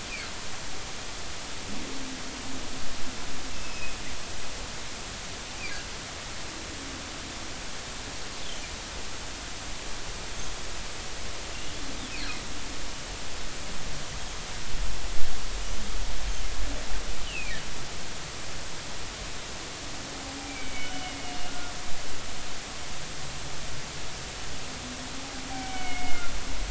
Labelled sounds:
3.5	4.0	humpback whale, 2.5 to 2.8 kHz
17.3	17.6	humpback whale, 2.2 to 3.1 kHz
20.5	21.7	humpback whale, 1.4 to 3.0 kHz
25.5	26.3	humpback whale, 1.3 to 3.1 kHz

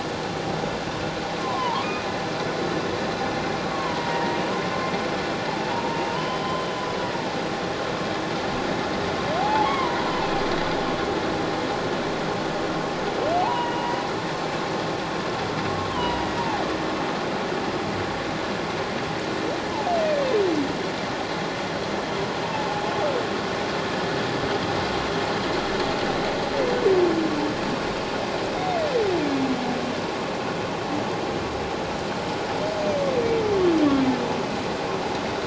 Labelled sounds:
1.4	2.1	humpback whale, 0.84 to 2.5 kHz
3.7	4.4	humpback whale, 0.91 to 1.9 kHz
5.5	6.7	humpback whale, 0.78 to 3.2 kHz
9.4	10.3	humpback whale, 0.78 to 1.2 kHz
13.4	14.0	humpback whale, 0.78 to 3.0 kHz
15.9	16.4	humpback whale, 0.91 to 3.2 kHz
22.4	22.9	humpback whale, 0.78 to 0.97 kHz

